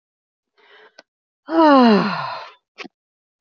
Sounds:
Sigh